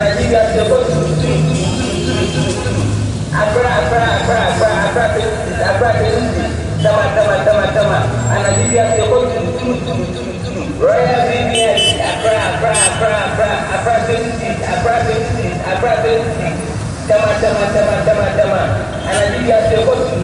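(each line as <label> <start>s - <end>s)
A man is speaking through a megaphone. 0.0s - 20.2s
A car horn honks. 11.4s - 13.0s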